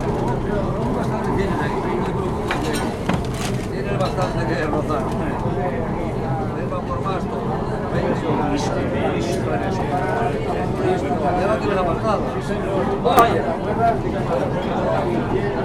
Are there people in the area?
yes